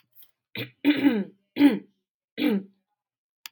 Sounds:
Throat clearing